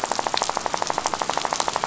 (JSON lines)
{"label": "biophony, rattle", "recorder": "SoundTrap 500"}